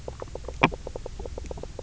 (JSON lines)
{"label": "biophony, knock croak", "recorder": "SoundTrap 300"}